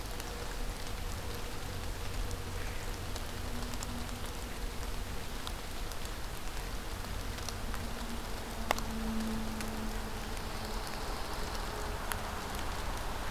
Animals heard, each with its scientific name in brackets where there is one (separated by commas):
Pine Warbler (Setophaga pinus)